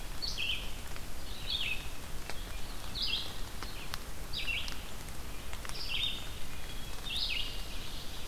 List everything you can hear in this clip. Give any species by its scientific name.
Vireo olivaceus, Hylocichla mustelina, Seiurus aurocapilla